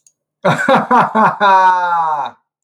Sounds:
Laughter